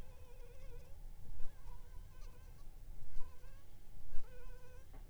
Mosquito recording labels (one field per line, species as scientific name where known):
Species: Anopheles funestus s.s.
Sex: female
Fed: unfed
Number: one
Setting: cup